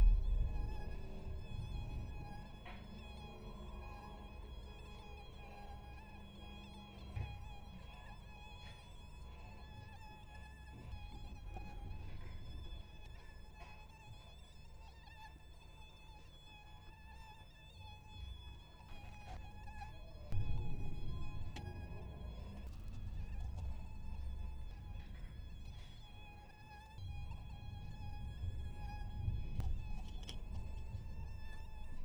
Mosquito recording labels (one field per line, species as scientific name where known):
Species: Anopheles coluzzii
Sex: male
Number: one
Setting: cup